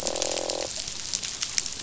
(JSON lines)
{"label": "biophony, croak", "recorder": "SoundTrap 500"}